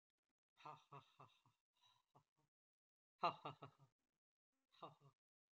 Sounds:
Laughter